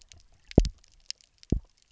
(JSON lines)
{"label": "biophony, double pulse", "recorder": "SoundTrap 300"}